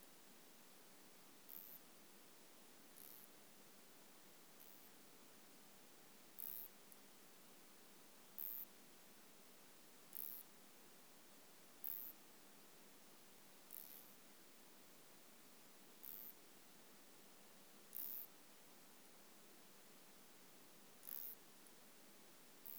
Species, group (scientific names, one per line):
Isophya clara
Orthoptera